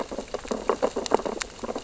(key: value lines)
label: biophony, sea urchins (Echinidae)
recorder: SoundTrap 600 or HydroMoth